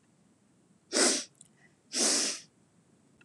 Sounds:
Sniff